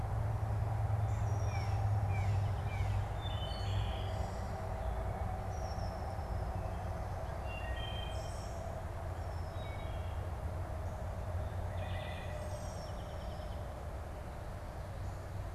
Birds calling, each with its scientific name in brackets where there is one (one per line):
Blue Jay (Cyanocitta cristata)
Wood Thrush (Hylocichla mustelina)
unidentified bird
American Goldfinch (Spinus tristis)